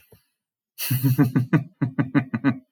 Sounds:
Laughter